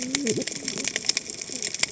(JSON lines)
{"label": "biophony, cascading saw", "recorder": "HydroMoth"}